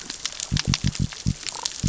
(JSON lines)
{"label": "biophony", "recorder": "SoundTrap 600 or HydroMoth"}